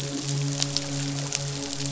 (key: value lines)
label: biophony, midshipman
recorder: SoundTrap 500